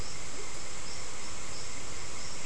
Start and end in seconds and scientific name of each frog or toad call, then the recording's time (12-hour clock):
0.0	0.8	Leptodactylus latrans
6:45pm